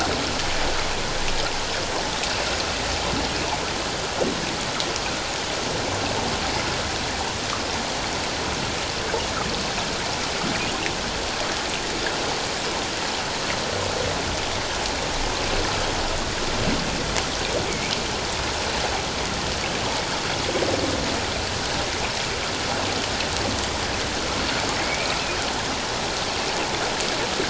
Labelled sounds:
24.8	25.2	humpback whale, 1.9 to 2.5 kHz

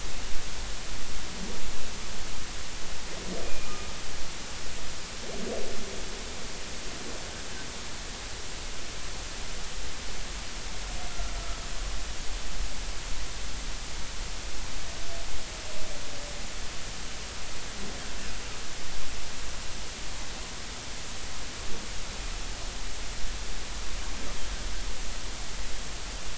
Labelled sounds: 3.4	3.9	humpback whale, 1.2 to 2.5 kHz
11.1	11.4	humpback whale, 1.3 to 1.4 kHz

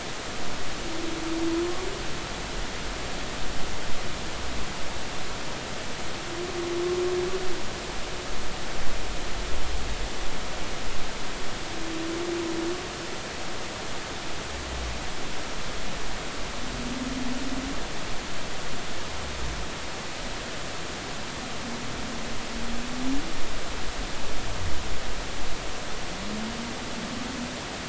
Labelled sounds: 1.5	1.9	humpback whale, 0.96 to 1.2 kHz

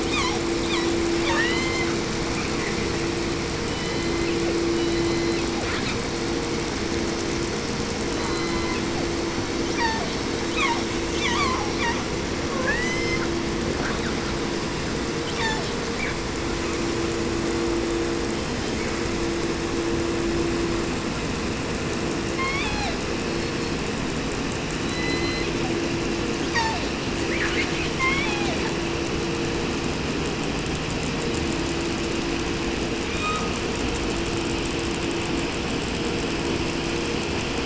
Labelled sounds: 0.0	1.0	killer whale, 0.45 to 7.8 kHz
1.1	2.1	killer whale, southern resident, 0.55 to 8.0 kHz
3.6	5.7	killer whale, southern resident, J pod, call S01, 0.31 to 6.5 kHz
5.6	6.1	killer whale, southern resident, 0.41 to 5.6 kHz
8.1	8.9	killer whale, southern resident, J pod, call S04, 0.45 to 1.7 kHz
8.1	9.1	killer whale, southern resident, J pod, call S01, 0.43 to 4.8 kHz
9.5	12.1	killer whale, southern resident, call S36, 0.52 to 8.0 kHz
12.4	13.4	killer whale, 0.74 to 8.0 kHz
13.7	14.6	killer whale, southern resident, 0.56 to 4.5 kHz
15.2	15.8	killer whale, southern resident, call S36, 0.49 to 8.0 kHz
15.9	16.2	killer whale, 0.62 to 2.9 kHz
18.3	19.7	killer whale, southern resident, 0.56 to 4.1 kHz
22.2	24.1	killer whale, southern resident, J pod, call S01, 0.47 to 7.9 kHz
24.7	25.9	killer whale, southern resident, J pod, call S01, 0.49 to 6.3 kHz
26.4	27.0	killer whale, southern resident, call S36, 0.41 to 8.0 kHz
27.3	27.9	killer whale, southern resident, call S10, 0.54 to 8.0 kHz
27.9	28.8	killer whale, southern resident, J pod, call S01, 0.49 to 5.9 kHz
33.0	33.8	killer whale, 0.47 to 8.0 kHz

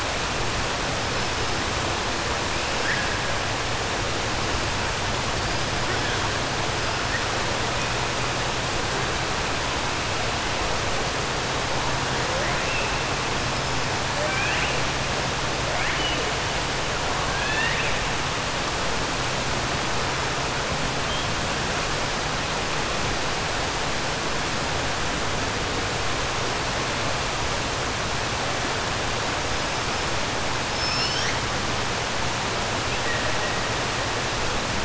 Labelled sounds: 17.3	17.9	killer whale, 1.6 to 4.4 kHz

